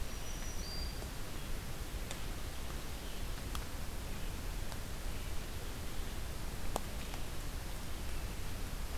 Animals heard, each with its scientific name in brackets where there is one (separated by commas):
Black-throated Green Warbler (Setophaga virens), Red-eyed Vireo (Vireo olivaceus)